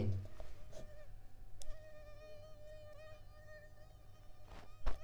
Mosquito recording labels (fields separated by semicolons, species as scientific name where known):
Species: Culex pipiens complex; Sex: female; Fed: unfed; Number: one; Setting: cup